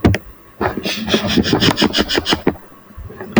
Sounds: Sniff